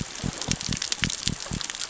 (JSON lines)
{"label": "biophony", "recorder": "SoundTrap 600 or HydroMoth"}